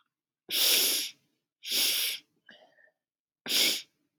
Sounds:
Sniff